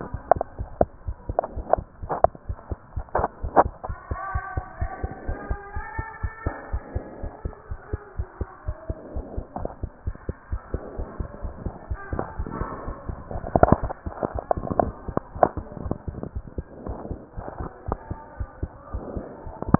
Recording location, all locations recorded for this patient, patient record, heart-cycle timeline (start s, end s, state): pulmonary valve (PV)
aortic valve (AV)+pulmonary valve (PV)+tricuspid valve (TV)+mitral valve (MV)
#Age: Child
#Sex: Male
#Height: 101.0 cm
#Weight: 18.5 kg
#Pregnancy status: False
#Murmur: Absent
#Murmur locations: nan
#Most audible location: nan
#Systolic murmur timing: nan
#Systolic murmur shape: nan
#Systolic murmur grading: nan
#Systolic murmur pitch: nan
#Systolic murmur quality: nan
#Diastolic murmur timing: nan
#Diastolic murmur shape: nan
#Diastolic murmur grading: nan
#Diastolic murmur pitch: nan
#Diastolic murmur quality: nan
#Outcome: Abnormal
#Campaign: 2015 screening campaign
0.00	4.77	unannotated
4.77	4.91	S1
4.91	5.00	systole
5.00	5.09	S2
5.09	5.26	diastole
5.26	5.35	S1
5.35	5.48	systole
5.48	5.57	S2
5.57	5.74	diastole
5.74	5.82	S1
5.82	5.96	systole
5.96	6.04	S2
6.04	6.21	diastole
6.21	6.30	S1
6.30	6.43	systole
6.43	6.52	S2
6.52	6.70	diastole
6.70	6.80	S1
6.80	6.92	systole
6.92	7.01	S2
7.01	7.21	diastole
7.21	7.31	S1
7.31	7.43	systole
7.43	7.52	S2
7.52	7.68	diastole
7.68	7.78	S1
7.78	7.89	systole
7.89	7.98	S2
7.98	8.16	diastole
8.16	8.25	S1
8.25	8.38	systole
8.38	8.48	S2
8.48	8.65	diastole
8.65	8.75	S1
8.75	8.86	systole
8.86	8.95	S2
8.95	9.13	diastole
9.13	9.23	S1
9.23	9.35	systole
9.35	9.45	S2
9.45	9.60	diastole
9.60	9.69	S1
9.69	9.80	systole
9.80	9.88	S2
9.88	10.04	diastole
10.04	10.14	S1
10.14	10.26	systole
10.26	10.34	S2
10.34	10.49	diastole
10.49	10.60	S1
10.60	10.71	systole
10.71	10.79	S2
10.79	10.96	diastole
10.96	11.05	S1
11.05	11.16	systole
11.16	11.25	S2
11.25	11.41	diastole
11.41	11.51	S1
11.51	11.64	systole
11.64	11.72	S2
11.72	11.89	diastole
11.89	11.99	S1
11.99	19.79	unannotated